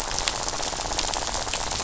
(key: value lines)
label: biophony, rattle
recorder: SoundTrap 500